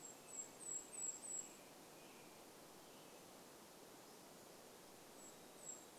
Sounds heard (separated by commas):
American Robin song, Varied Thrush song, Golden-crowned Kinglet song